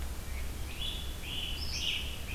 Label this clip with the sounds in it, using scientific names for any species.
Vireo olivaceus, Myiarchus crinitus